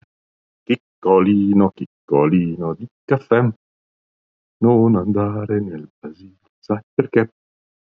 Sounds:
Sigh